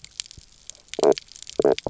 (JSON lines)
{"label": "biophony, knock croak", "recorder": "SoundTrap 300"}